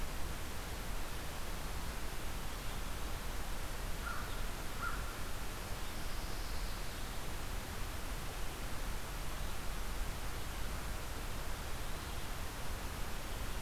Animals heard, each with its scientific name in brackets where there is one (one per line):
Pine Warbler (Setophaga pinus)
American Crow (Corvus brachyrhynchos)